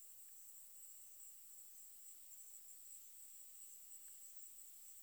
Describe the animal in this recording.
Helicocercus triguttatus, an orthopteran